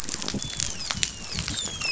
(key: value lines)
label: biophony, dolphin
recorder: SoundTrap 500